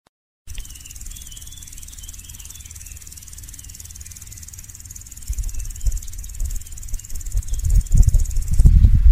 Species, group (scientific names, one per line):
Omocestus viridulus
Orthoptera